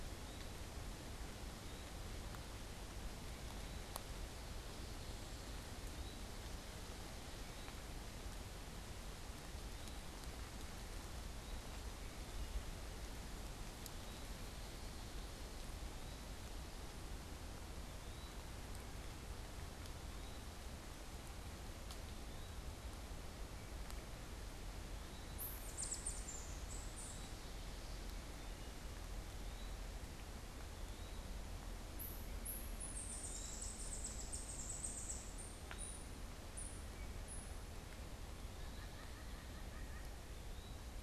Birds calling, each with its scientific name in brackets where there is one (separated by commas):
White-breasted Nuthatch (Sitta carolinensis), Wood Thrush (Hylocichla mustelina), Eastern Wood-Pewee (Contopus virens)